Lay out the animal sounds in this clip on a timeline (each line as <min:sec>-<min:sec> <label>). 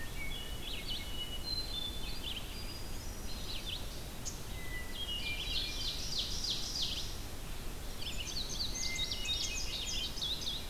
0:00.0-0:03.9 Hermit Thrush (Catharus guttatus)
0:00.6-0:10.7 Red-eyed Vireo (Vireo olivaceus)
0:04.5-0:06.2 Hermit Thrush (Catharus guttatus)
0:04.9-0:07.2 Ovenbird (Seiurus aurocapilla)
0:07.8-0:10.7 Indigo Bunting (Passerina cyanea)
0:08.7-0:10.2 Hermit Thrush (Catharus guttatus)